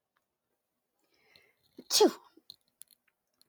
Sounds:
Sneeze